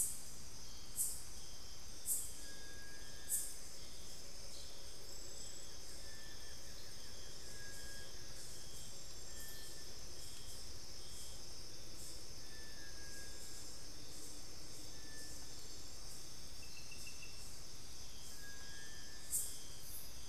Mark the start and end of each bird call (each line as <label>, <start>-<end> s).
Little Tinamou (Crypturellus soui), 0.0-20.3 s
Cinereous Tinamou (Crypturellus cinereus), 5.8-6.5 s